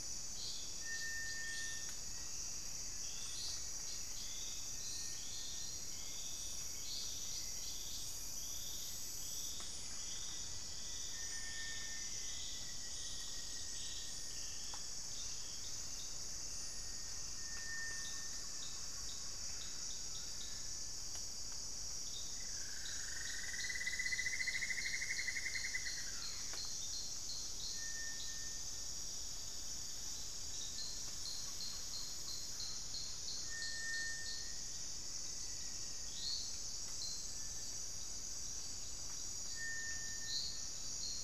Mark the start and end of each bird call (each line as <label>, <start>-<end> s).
Cinereous Tinamou (Crypturellus cinereus), 0.0-38.4 s
Rufous-fronted Antthrush (Formicarius rufifrons), 9.5-14.9 s
unidentified bird, 16.9-19.9 s
Cinnamon-throated Woodcreeper (Dendrexetastes rufigula), 22.0-27.0 s
unidentified bird, 30.8-32.7 s